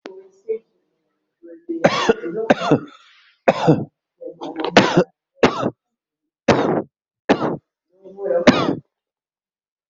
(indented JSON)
{
  "expert_labels": [
    {
      "quality": "ok",
      "cough_type": "dry",
      "dyspnea": false,
      "wheezing": false,
      "stridor": false,
      "choking": false,
      "congestion": false,
      "nothing": true,
      "diagnosis": "COVID-19",
      "severity": "mild"
    }
  ],
  "age": 48,
  "gender": "male",
  "respiratory_condition": false,
  "fever_muscle_pain": false,
  "status": "symptomatic"
}